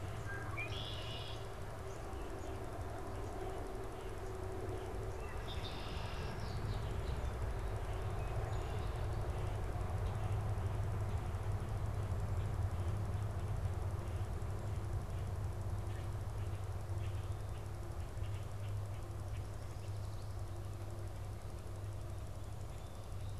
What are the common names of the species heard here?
Red-winged Blackbird, unidentified bird